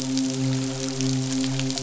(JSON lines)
{"label": "biophony, midshipman", "recorder": "SoundTrap 500"}